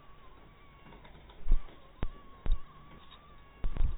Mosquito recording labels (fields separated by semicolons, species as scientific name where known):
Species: mosquito; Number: one; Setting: cup